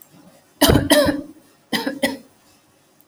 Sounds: Cough